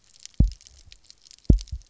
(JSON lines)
{"label": "biophony, double pulse", "recorder": "SoundTrap 300"}